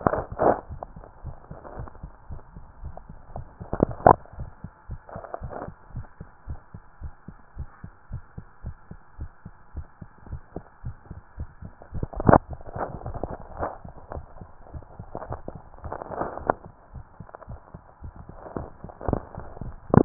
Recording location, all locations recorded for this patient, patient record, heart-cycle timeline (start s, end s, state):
tricuspid valve (TV)
aortic valve (AV)+pulmonary valve (PV)+tricuspid valve (TV)+mitral valve (MV)
#Age: Child
#Sex: Male
#Height: 138.0 cm
#Weight: 37.4 kg
#Pregnancy status: False
#Murmur: Absent
#Murmur locations: nan
#Most audible location: nan
#Systolic murmur timing: nan
#Systolic murmur shape: nan
#Systolic murmur grading: nan
#Systolic murmur pitch: nan
#Systolic murmur quality: nan
#Diastolic murmur timing: nan
#Diastolic murmur shape: nan
#Diastolic murmur grading: nan
#Diastolic murmur pitch: nan
#Diastolic murmur quality: nan
#Outcome: Normal
#Campaign: 2015 screening campaign
0.00	5.92	unannotated
5.92	6.06	S1
6.06	6.18	systole
6.18	6.28	S2
6.28	6.44	diastole
6.44	6.58	S1
6.58	6.70	systole
6.70	6.80	S2
6.80	6.98	diastole
6.98	7.10	S1
7.10	7.24	systole
7.24	7.36	S2
7.36	7.54	diastole
7.54	7.68	S1
7.68	7.84	systole
7.84	7.92	S2
7.92	8.10	diastole
8.10	8.22	S1
8.22	8.36	systole
8.36	8.46	S2
8.46	8.64	diastole
8.64	8.76	S1
8.76	8.90	systole
8.90	8.98	S2
8.98	9.16	diastole
9.16	9.28	S1
9.28	9.44	systole
9.44	9.54	S2
9.54	9.72	diastole
9.72	9.88	S1
9.88	10.02	systole
10.02	10.10	S2
10.10	10.28	diastole
10.28	10.42	S1
10.42	10.56	systole
10.56	10.66	S2
10.66	10.84	diastole
10.84	10.98	S1
10.98	11.10	systole
11.10	11.22	S2
11.22	11.38	diastole
11.38	11.50	S1
11.50	11.62	systole
11.62	11.72	S2
11.72	11.90	diastole
11.90	20.05	unannotated